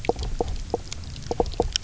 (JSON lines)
{"label": "biophony, knock croak", "recorder": "SoundTrap 300"}